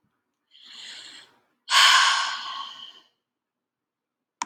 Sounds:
Sigh